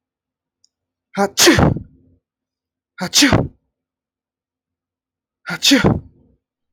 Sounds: Sneeze